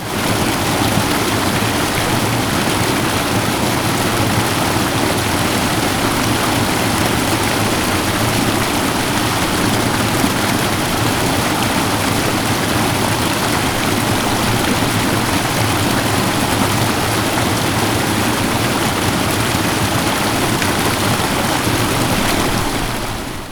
Is is quiet?
no